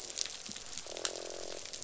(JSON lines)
{"label": "biophony, croak", "recorder": "SoundTrap 500"}